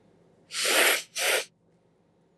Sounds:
Sniff